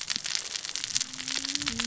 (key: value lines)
label: biophony, cascading saw
recorder: SoundTrap 600 or HydroMoth